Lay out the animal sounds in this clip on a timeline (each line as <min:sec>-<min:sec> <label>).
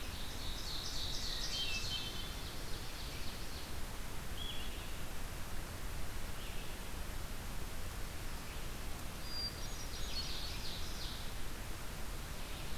0:00.0-0:03.8 Ovenbird (Seiurus aurocapilla)
0:00.0-0:12.8 Blue-headed Vireo (Vireo solitarius)
0:00.0-0:12.8 Red-eyed Vireo (Vireo olivaceus)
0:01.1-0:02.3 Hermit Thrush (Catharus guttatus)
0:09.1-0:10.5 Hermit Thrush (Catharus guttatus)
0:09.5-0:11.3 Ovenbird (Seiurus aurocapilla)